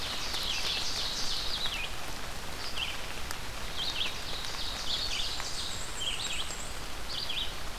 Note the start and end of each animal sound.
[0.00, 1.59] Ovenbird (Seiurus aurocapilla)
[0.00, 5.36] Red-eyed Vireo (Vireo olivaceus)
[3.86, 5.86] Ovenbird (Seiurus aurocapilla)
[4.61, 5.89] Blackburnian Warbler (Setophaga fusca)
[5.25, 6.74] Black-and-white Warbler (Mniotilta varia)
[5.92, 7.79] Red-eyed Vireo (Vireo olivaceus)

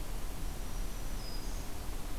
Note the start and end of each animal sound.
[0.35, 1.76] Black-throated Green Warbler (Setophaga virens)

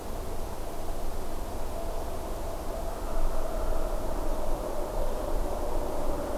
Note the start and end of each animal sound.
[2.91, 4.16] Hairy Woodpecker (Dryobates villosus)

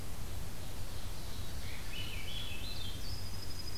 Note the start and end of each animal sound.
[0.21, 2.55] Ovenbird (Seiurus aurocapilla)
[1.60, 3.19] Swainson's Thrush (Catharus ustulatus)
[3.07, 3.77] Dark-eyed Junco (Junco hyemalis)

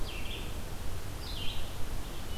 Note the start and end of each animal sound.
[0.00, 2.37] Red-eyed Vireo (Vireo olivaceus)

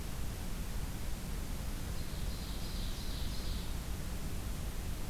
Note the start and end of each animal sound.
[1.65, 3.83] Ovenbird (Seiurus aurocapilla)

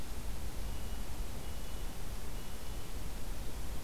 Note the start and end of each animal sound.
[0.63, 2.93] Red-breasted Nuthatch (Sitta canadensis)

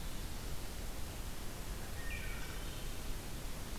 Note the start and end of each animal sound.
[1.84, 3.04] Wood Thrush (Hylocichla mustelina)

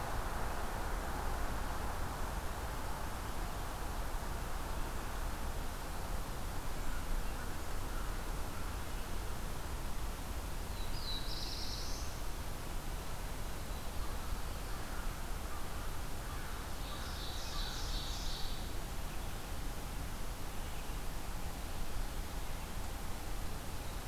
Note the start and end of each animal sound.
[10.55, 12.18] Black-throated Blue Warbler (Setophaga caerulescens)
[16.52, 18.77] Ovenbird (Seiurus aurocapilla)

